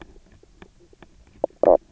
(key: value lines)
label: biophony, knock croak
recorder: SoundTrap 300